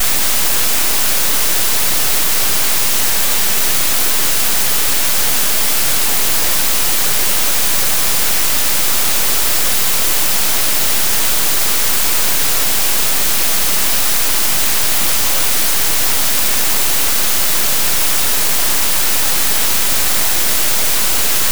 is there a storm?
yes